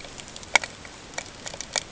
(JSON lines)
{"label": "ambient", "recorder": "HydroMoth"}